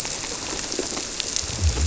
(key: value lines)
label: biophony
recorder: SoundTrap 300